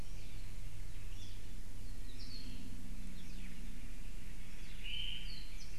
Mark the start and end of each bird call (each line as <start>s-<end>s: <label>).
1.8s-2.4s: Apapane (Himatione sanguinea)
4.8s-5.4s: Omao (Myadestes obscurus)
5.2s-5.7s: Apapane (Himatione sanguinea)